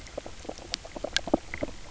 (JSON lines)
{"label": "biophony, knock croak", "recorder": "SoundTrap 300"}